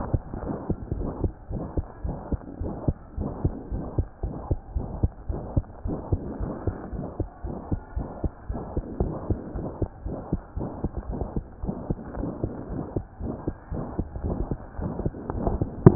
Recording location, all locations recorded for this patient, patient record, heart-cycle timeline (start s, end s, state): aortic valve (AV)
aortic valve (AV)+pulmonary valve (PV)+tricuspid valve (TV)+mitral valve (MV)
#Age: Child
#Sex: Male
#Height: 129.0 cm
#Weight: 20.0 kg
#Pregnancy status: False
#Murmur: Present
#Murmur locations: aortic valve (AV)+mitral valve (MV)+pulmonary valve (PV)+tricuspid valve (TV)
#Most audible location: tricuspid valve (TV)
#Systolic murmur timing: Holosystolic
#Systolic murmur shape: Plateau
#Systolic murmur grading: III/VI or higher
#Systolic murmur pitch: High
#Systolic murmur quality: Harsh
#Diastolic murmur timing: nan
#Diastolic murmur shape: nan
#Diastolic murmur grading: nan
#Diastolic murmur pitch: nan
#Diastolic murmur quality: nan
#Outcome: Abnormal
#Campaign: 2014 screening campaign
0.00	0.06	unannotated
0.06	0.12	systole
0.12	0.24	S2
0.24	0.44	diastole
0.44	0.56	S1
0.56	0.68	systole
0.68	0.78	S2
0.78	0.96	diastole
0.96	1.12	S1
1.12	1.22	systole
1.22	1.34	S2
1.34	1.52	diastole
1.52	1.66	S1
1.66	1.76	systole
1.76	1.86	S2
1.86	2.04	diastole
2.04	2.18	S1
2.18	2.32	systole
2.32	2.42	S2
2.42	2.60	diastole
2.60	2.74	S1
2.74	2.86	systole
2.86	2.98	S2
2.98	3.18	diastole
3.18	3.32	S1
3.32	3.44	systole
3.44	3.54	S2
3.54	3.72	diastole
3.72	3.84	S1
3.84	3.96	systole
3.96	4.06	S2
4.06	4.24	diastole
4.24	4.36	S1
4.36	4.50	systole
4.50	4.60	S2
4.60	4.76	diastole
4.76	4.88	S1
4.88	5.02	systole
5.02	5.12	S2
5.12	5.30	diastole
5.30	5.42	S1
5.42	5.56	systole
5.56	5.66	S2
5.66	5.86	diastole
5.86	6.00	S1
6.00	6.12	systole
6.12	6.22	S2
6.22	6.40	diastole
6.40	6.54	S1
6.54	6.66	systole
6.66	6.76	S2
6.76	6.94	diastole
6.94	7.06	S1
7.06	7.20	systole
7.20	7.28	S2
7.28	7.46	diastole
7.46	7.56	S1
7.56	7.70	systole
7.70	7.80	S2
7.80	7.96	diastole
7.96	8.06	S1
8.06	8.20	systole
8.20	8.30	S2
8.30	8.50	diastole
8.50	8.62	S1
8.62	8.76	systole
8.76	8.84	S2
8.84	9.00	diastole
9.00	9.14	S1
9.14	9.28	systole
9.28	9.40	S2
9.40	9.56	diastole
9.56	9.68	S1
9.68	9.80	systole
9.80	9.88	S2
9.88	10.06	diastole
10.06	10.18	S1
10.18	10.32	systole
10.32	10.40	S2
10.40	10.58	diastole
10.58	10.70	S1
10.70	10.82	systole
10.82	10.92	S2
10.92	11.10	diastole
11.10	11.24	S1
11.24	11.36	systole
11.36	11.46	S2
11.46	11.64	diastole
11.64	11.76	S1
11.76	11.90	systole
11.90	12.00	S2
12.00	12.18	diastole
12.18	12.32	S1
12.32	12.44	systole
12.44	12.54	S2
12.54	12.72	diastole
12.72	12.84	S1
12.84	12.96	systole
12.96	13.06	S2
13.06	13.24	diastole
13.24	13.36	S1
13.36	13.48	systole
13.48	13.56	S2
13.56	13.74	diastole
13.74	13.86	S1
13.86	13.98	systole
13.98	14.06	S2
14.06	14.24	diastole
14.24	14.38	S1
14.38	14.52	systole
14.52	14.62	S2
14.62	14.80	diastole
14.80	14.92	S1
14.92	15.04	systole
15.04	15.16	S2
15.16	15.36	diastole
15.36	15.49	S1
15.49	15.60	systole
15.60	15.68	S2
15.68	15.80	diastole
15.80	15.95	unannotated